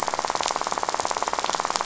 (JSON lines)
{"label": "biophony, rattle", "recorder": "SoundTrap 500"}